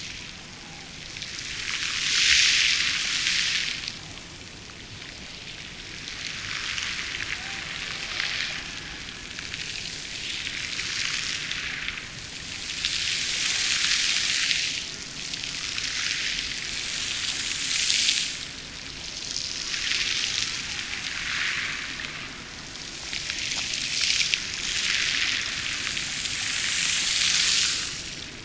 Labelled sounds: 7.3	9.1	killer whale, Bigg's (transient), Gulf of Alaska transient, 0.41 to 1.0 kHz

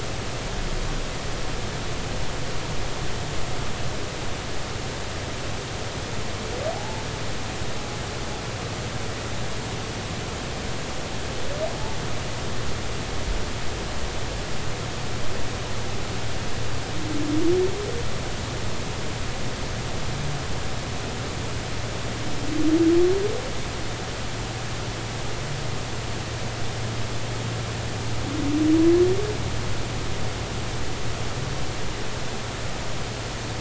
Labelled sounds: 6.7	7.0	humpback whale, 0.80 to 0.93 kHz

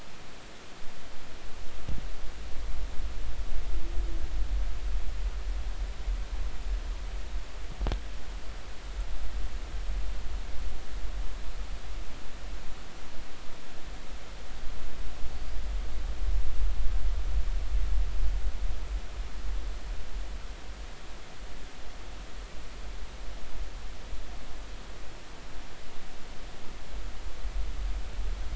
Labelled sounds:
15.3	15.6	killer whale, Bigg's (transient), 4.5 to 4.9 kHz

